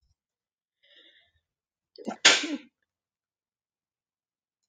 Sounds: Sneeze